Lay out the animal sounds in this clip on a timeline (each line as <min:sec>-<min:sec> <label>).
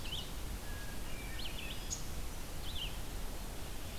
0:00.0-0:04.0 Red-eyed Vireo (Vireo olivaceus)
0:01.0-0:02.1 Hermit Thrush (Catharus guttatus)